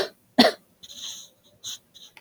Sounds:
Cough